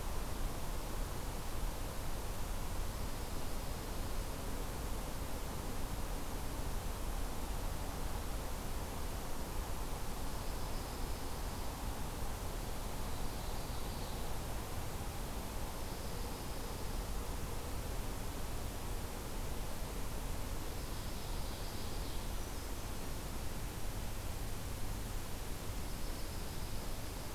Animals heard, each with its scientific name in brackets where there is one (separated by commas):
Brown Creeper (Certhia americana), Ovenbird (Seiurus aurocapilla), Dark-eyed Junco (Junco hyemalis)